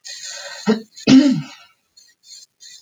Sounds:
Throat clearing